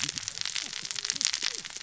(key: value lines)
label: biophony, cascading saw
recorder: SoundTrap 600 or HydroMoth